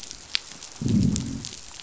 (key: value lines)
label: biophony, growl
recorder: SoundTrap 500